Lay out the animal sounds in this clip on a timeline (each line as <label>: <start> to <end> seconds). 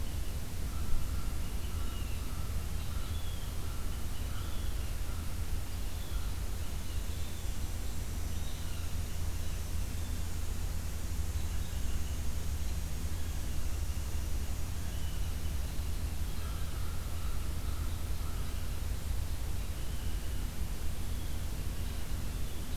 American Crow (Corvus brachyrhynchos): 0.5 to 6.8 seconds
Blue Jay (Cyanocitta cristata): 1.4 to 9.3 seconds
Blue Jay (Cyanocitta cristata): 14.8 to 22.2 seconds
American Crow (Corvus brachyrhynchos): 16.3 to 18.8 seconds